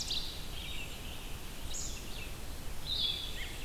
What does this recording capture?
Ovenbird, Red-eyed Vireo, unidentified call, Blue-headed Vireo